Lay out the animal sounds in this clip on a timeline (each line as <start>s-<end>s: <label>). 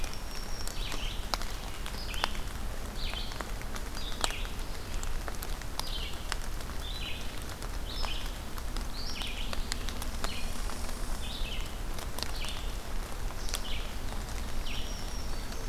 0.0s-1.2s: Black-throated Green Warbler (Setophaga virens)
0.0s-15.7s: Red-eyed Vireo (Vireo olivaceus)
10.1s-11.4s: Red Squirrel (Tamiasciurus hudsonicus)
14.2s-15.7s: Black-throated Green Warbler (Setophaga virens)